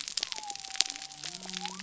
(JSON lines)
{"label": "biophony", "recorder": "SoundTrap 300"}